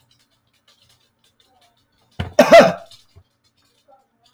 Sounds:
Cough